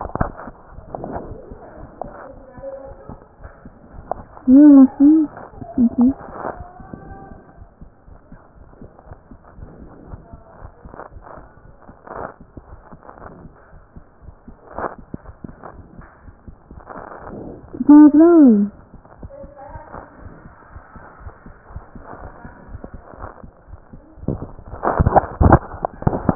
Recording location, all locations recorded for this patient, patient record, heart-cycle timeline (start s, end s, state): aortic valve (AV)
aortic valve (AV)+pulmonary valve (PV)+tricuspid valve (TV)+mitral valve (MV)
#Age: Adolescent
#Sex: Male
#Height: 151.0 cm
#Weight: 38.3 kg
#Pregnancy status: False
#Murmur: Absent
#Murmur locations: nan
#Most audible location: nan
#Systolic murmur timing: nan
#Systolic murmur shape: nan
#Systolic murmur grading: nan
#Systolic murmur pitch: nan
#Systolic murmur quality: nan
#Diastolic murmur timing: nan
#Diastolic murmur shape: nan
#Diastolic murmur grading: nan
#Diastolic murmur pitch: nan
#Diastolic murmur quality: nan
#Outcome: Normal
#Campaign: 2015 screening campaign
0.00	7.90	unannotated
7.90	8.08	diastole
8.08	8.20	S1
8.20	8.32	systole
8.32	8.40	S2
8.40	8.57	diastole
8.57	8.66	S1
8.66	8.79	systole
8.79	8.88	S2
8.88	9.10	diastole
9.10	9.20	S1
9.20	9.30	systole
9.30	9.38	S2
9.38	9.56	diastole
9.56	9.69	S1
9.69	9.80	systole
9.80	9.90	S2
9.90	10.11	diastole
10.11	10.17	S1
10.17	10.32	systole
10.32	10.38	S2
10.38	10.60	diastole
10.60	10.69	S1
10.69	10.83	systole
10.83	10.91	S2
10.91	11.14	diastole
11.14	11.26	S1
11.26	11.36	systole
11.36	11.48	S2
11.48	11.63	diastole
11.63	11.73	S1
11.73	11.88	systole
11.88	11.94	S2
11.94	12.11	diastole
12.11	13.20	unannotated
13.20	13.32	S1
13.32	13.40	systole
13.40	13.52	S2
13.52	13.74	diastole
13.74	13.82	S1
13.82	13.95	systole
13.95	14.01	S2
14.01	14.24	diastole
14.24	14.34	S1
14.34	14.48	systole
14.48	14.58	S2
14.58	14.73	diastole
14.73	26.35	unannotated